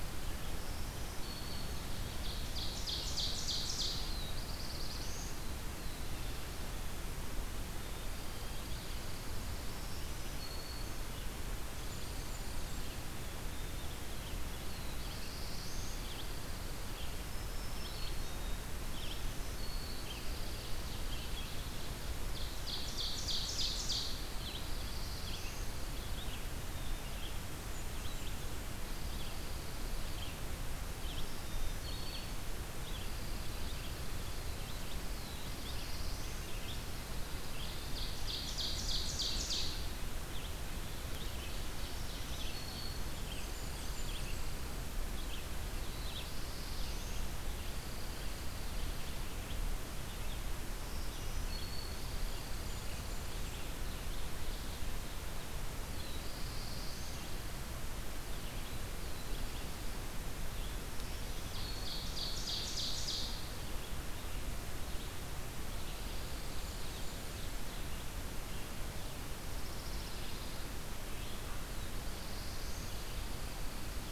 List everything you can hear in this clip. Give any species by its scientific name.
Setophaga virens, Seiurus aurocapilla, Setophaga caerulescens, Setophaga pinus, Setophaga fusca, Vireo olivaceus